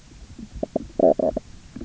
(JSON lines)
{"label": "biophony, knock croak", "recorder": "SoundTrap 300"}